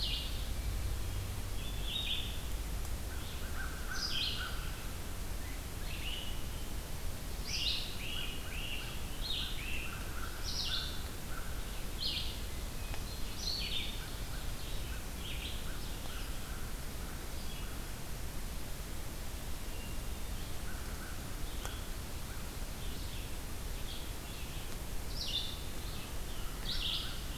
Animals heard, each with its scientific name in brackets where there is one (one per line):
Red-eyed Vireo (Vireo olivaceus)
American Crow (Corvus brachyrhynchos)
Great Crested Flycatcher (Myiarchus crinitus)
Ovenbird (Seiurus aurocapilla)
Hermit Thrush (Catharus guttatus)